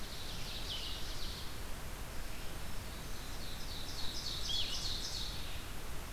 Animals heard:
Blue-headed Vireo (Vireo solitarius), Ovenbird (Seiurus aurocapilla), Red-eyed Vireo (Vireo olivaceus)

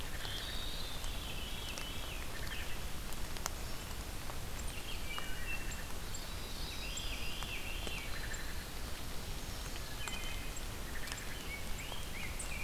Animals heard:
Wood Thrush (Hylocichla mustelina), Veery (Catharus fuscescens), unknown mammal, Rose-breasted Grosbeak (Pheucticus ludovicianus), Yellow-rumped Warbler (Setophaga coronata)

